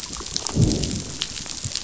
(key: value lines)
label: biophony, growl
recorder: SoundTrap 500